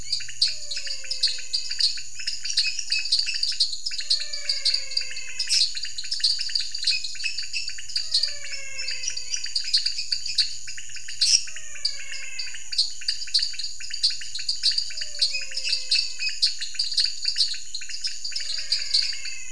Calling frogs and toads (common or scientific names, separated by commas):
dwarf tree frog, pointedbelly frog, menwig frog, lesser tree frog